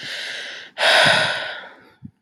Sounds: Sigh